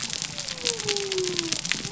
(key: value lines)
label: biophony
recorder: SoundTrap 300